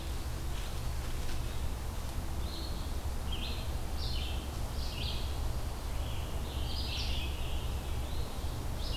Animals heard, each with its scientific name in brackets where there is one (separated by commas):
Scarlet Tanager (Piranga olivacea), Red-eyed Vireo (Vireo olivaceus), Eastern Phoebe (Sayornis phoebe)